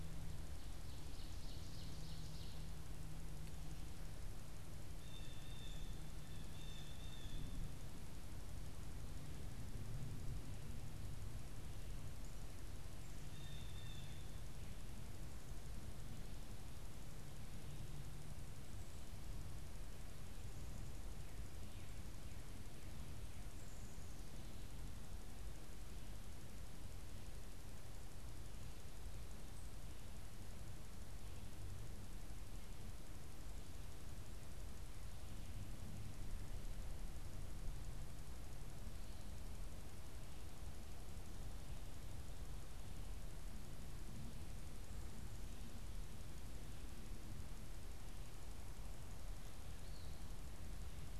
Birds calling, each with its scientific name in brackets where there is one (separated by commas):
Blue Jay (Cyanocitta cristata), Ovenbird (Seiurus aurocapilla), unidentified bird